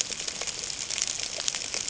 {"label": "ambient", "recorder": "HydroMoth"}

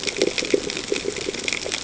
{"label": "ambient", "recorder": "HydroMoth"}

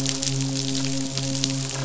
{"label": "biophony, midshipman", "recorder": "SoundTrap 500"}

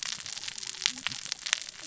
{"label": "biophony, cascading saw", "recorder": "SoundTrap 600 or HydroMoth"}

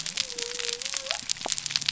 {"label": "biophony", "recorder": "SoundTrap 300"}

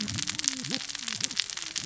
{"label": "biophony, cascading saw", "recorder": "SoundTrap 600 or HydroMoth"}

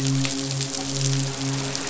{"label": "biophony, midshipman", "recorder": "SoundTrap 500"}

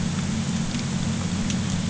{"label": "anthrophony, boat engine", "recorder": "HydroMoth"}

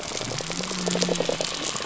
{"label": "biophony", "recorder": "SoundTrap 300"}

